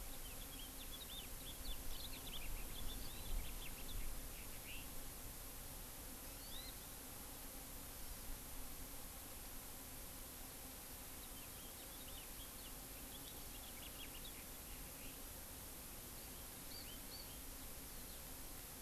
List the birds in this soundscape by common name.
House Finch, Warbling White-eye, Hawaii Amakihi